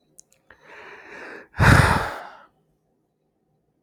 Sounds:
Sigh